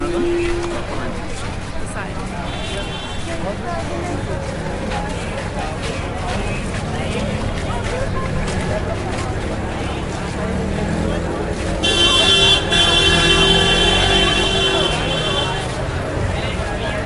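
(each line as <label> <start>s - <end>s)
Multiple people are talking muffled in the distance outdoors. 0.0s - 17.1s
A car horn honks muffled in the distance. 2.4s - 3.3s
A car horn honks loudly and repeatedly while moving away. 11.5s - 16.0s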